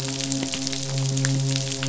{"label": "biophony, midshipman", "recorder": "SoundTrap 500"}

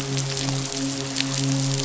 {"label": "biophony, midshipman", "recorder": "SoundTrap 500"}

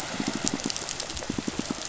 {"label": "biophony, pulse", "recorder": "SoundTrap 500"}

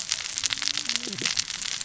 {"label": "biophony, cascading saw", "recorder": "SoundTrap 600 or HydroMoth"}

